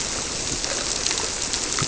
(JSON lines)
{"label": "biophony", "recorder": "SoundTrap 300"}